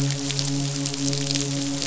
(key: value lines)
label: biophony, midshipman
recorder: SoundTrap 500